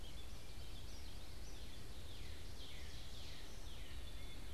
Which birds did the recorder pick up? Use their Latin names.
Dumetella carolinensis, Cardinalis cardinalis